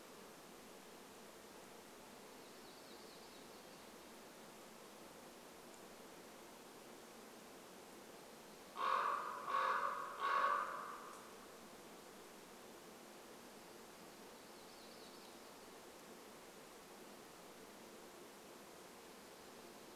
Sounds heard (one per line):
warbler song
Common Raven call